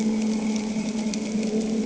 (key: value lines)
label: anthrophony, boat engine
recorder: HydroMoth